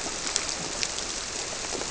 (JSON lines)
{"label": "biophony", "recorder": "SoundTrap 300"}